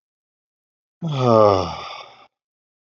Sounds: Sigh